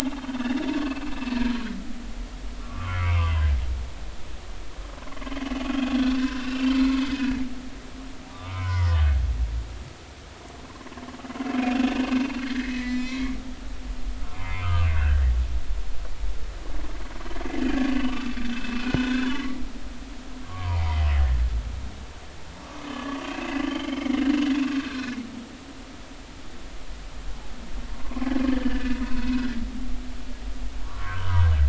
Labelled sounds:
0.8	1.1	humpback whale, 2.6 to 2.7 kHz
2.6	3.5	humpback whale, 0.96 to 3.3 kHz
5.8	6.7	humpback whale, 1.4 to 5.5 kHz
7.1	7.4	humpback whale, 1.6 to 1.9 kHz
8.3	9.0	humpback whale, 0.90 to 5.5 kHz
12.4	13.4	humpback whale, 1.5 to 5.7 kHz
14.2	15.2	humpback whale, 0.93 to 2.2 kHz
18.1	19.6	humpback whale, 0.93 to 3.6 kHz
20.5	21.4	humpback whale, 0.80 to 1.9 kHz
22.6	24.5	humpback whale, 0.96 to 3.3 kHz
24.8	25.2	humpback whale, 1.4 to 1.7 kHz
28.0	28.3	humpback whale, 0.93 to 1.2 kHz
28.5	29.6	humpback whale, 1.4 to 2.6 kHz
30.8	31.5	humpback whale, 0.90 to 1.7 kHz

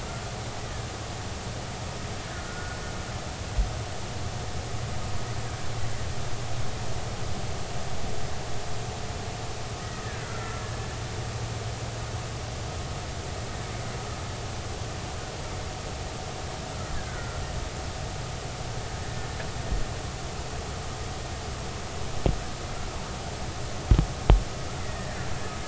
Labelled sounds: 0.6	0.8	killer whale, Bigg's (transient), 1.7 to 2.0 kHz
2.3	2.8	killer whale, Bigg's (transient), 1.4 to 1.5 kHz
10.0	10.6	killer whale, Bigg's (transient), 1.3 to 2.1 kHz
16.8	17.4	killer whale, Bigg's (transient), 1.3 to 2.0 kHz
19.0	19.3	killer whale, Bigg's (transient), 1.7 to 1.8 kHz
24.8	25.2	killer whale, Bigg's (transient), 1.6 to 2.1 kHz

